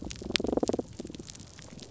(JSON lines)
{"label": "biophony, damselfish", "recorder": "SoundTrap 300"}